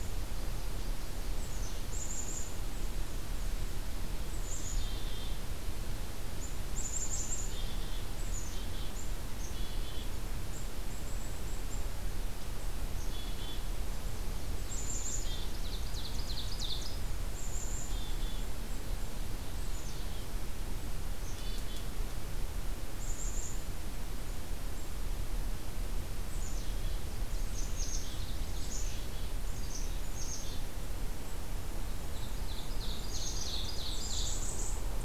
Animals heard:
Nashville Warbler (Leiothlypis ruficapilla), Black-capped Chickadee (Poecile atricapillus), Black-and-white Warbler (Mniotilta varia), Ovenbird (Seiurus aurocapilla)

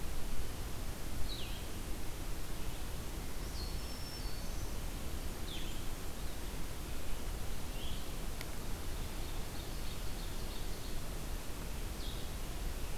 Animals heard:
Black-throated Green Warbler (Setophaga virens), Blue-headed Vireo (Vireo solitarius), Ovenbird (Seiurus aurocapilla)

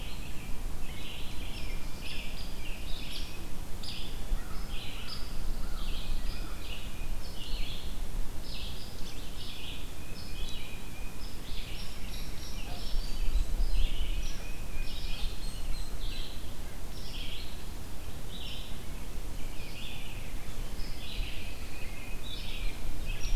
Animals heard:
Pine Warbler (Setophaga pinus), American Crow (Corvus brachyrhynchos), American Robin (Turdus migratorius), Tufted Titmouse (Baeolophus bicolor), Red-eyed Vireo (Vireo olivaceus), Hairy Woodpecker (Dryobates villosus)

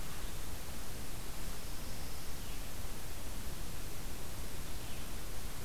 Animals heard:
Red-eyed Vireo (Vireo olivaceus)

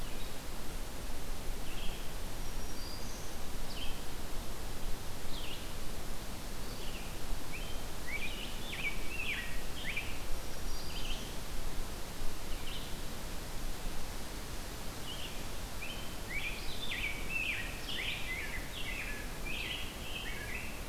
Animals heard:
Rose-breasted Grosbeak (Pheucticus ludovicianus), Black-throated Green Warbler (Setophaga virens), Red-eyed Vireo (Vireo olivaceus)

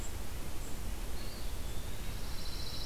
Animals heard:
Eastern Wood-Pewee (Contopus virens), Pine Warbler (Setophaga pinus)

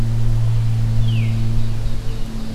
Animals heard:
Veery (Catharus fuscescens), Ovenbird (Seiurus aurocapilla)

